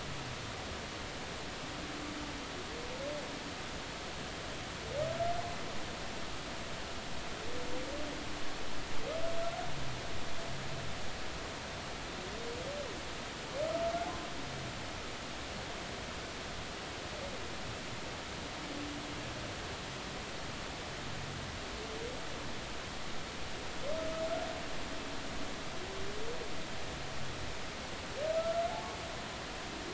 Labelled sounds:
28.4	29.0	humpback whale, 0.80 to 1.4 kHz

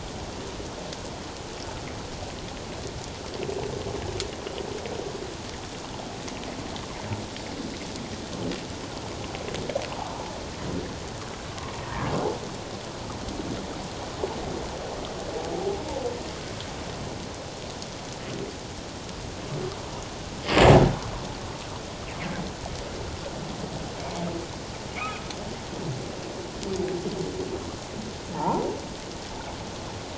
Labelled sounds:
11.8	12.1	humpback whale, 1.6 to 1.9 kHz
24.0	24.2	humpback whale, 2.2 to 2.5 kHz
25.0	25.2	humpback whale, 1.2 to 2.6 kHz
28.3	28.7	humpback whale, 0.78 to 1.1 kHz

